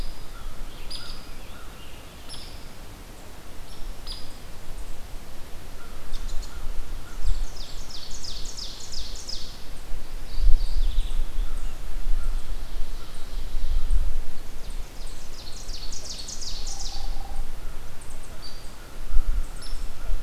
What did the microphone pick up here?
American Crow, Scarlet Tanager, Hairy Woodpecker, American Robin, Ovenbird, Mourning Warbler